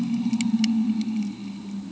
{"label": "anthrophony, boat engine", "recorder": "HydroMoth"}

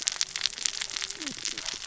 {"label": "biophony, cascading saw", "recorder": "SoundTrap 600 or HydroMoth"}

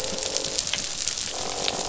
{"label": "biophony, croak", "recorder": "SoundTrap 500"}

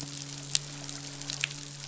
{"label": "biophony, midshipman", "recorder": "SoundTrap 500"}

